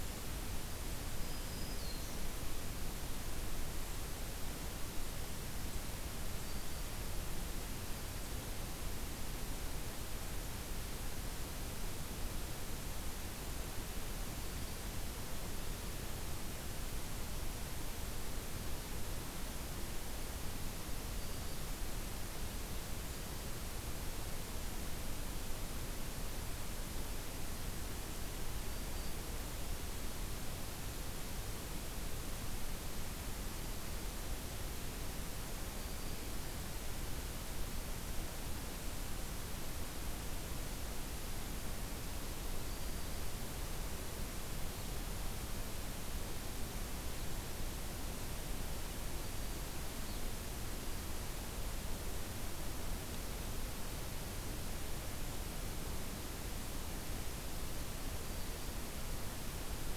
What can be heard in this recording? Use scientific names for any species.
Setophaga virens